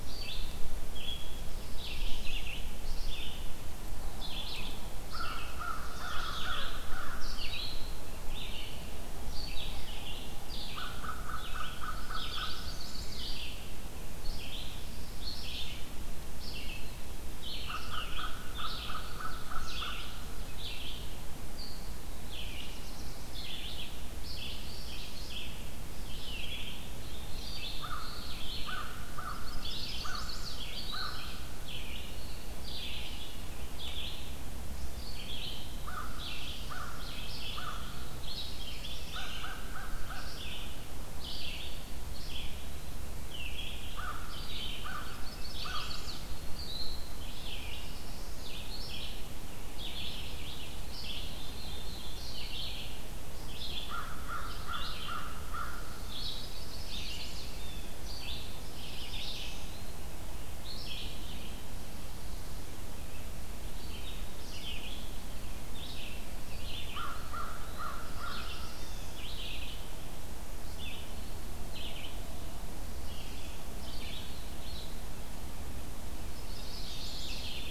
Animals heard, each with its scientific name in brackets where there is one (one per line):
Red-eyed Vireo (Vireo olivaceus)
Eastern Wood-Pewee (Contopus virens)
Black-throated Blue Warbler (Setophaga caerulescens)
American Crow (Corvus brachyrhynchos)
Blue Jay (Cyanocitta cristata)
Chimney Swift (Chaetura pelagica)